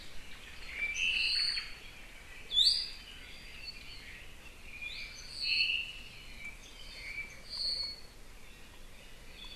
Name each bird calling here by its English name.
Apapane, Omao, Iiwi